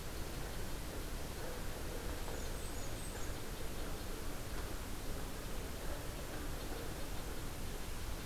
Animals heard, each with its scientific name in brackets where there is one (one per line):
Blackburnian Warbler (Setophaga fusca)
Red-breasted Nuthatch (Sitta canadensis)